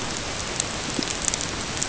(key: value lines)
label: ambient
recorder: HydroMoth